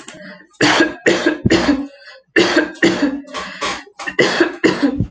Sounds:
Cough